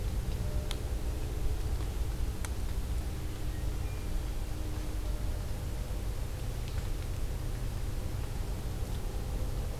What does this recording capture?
Hermit Thrush